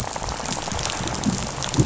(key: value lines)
label: biophony, rattle
recorder: SoundTrap 500